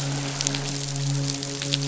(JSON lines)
{"label": "biophony, midshipman", "recorder": "SoundTrap 500"}